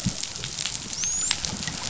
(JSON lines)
{"label": "biophony, dolphin", "recorder": "SoundTrap 500"}